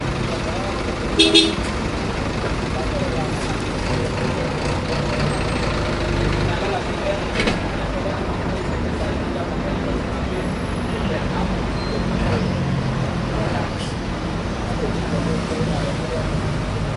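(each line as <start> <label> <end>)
0.0 A car horn honks. 17.0
0.0 Engine noise. 17.0
0.0 Humming. 17.0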